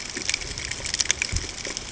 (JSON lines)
{"label": "ambient", "recorder": "HydroMoth"}